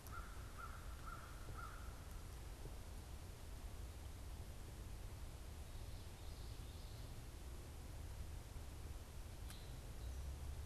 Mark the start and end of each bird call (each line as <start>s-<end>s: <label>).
0.0s-2.0s: American Crow (Corvus brachyrhynchos)
5.6s-7.1s: Common Yellowthroat (Geothlypis trichas)